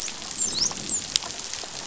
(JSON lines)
{"label": "biophony, dolphin", "recorder": "SoundTrap 500"}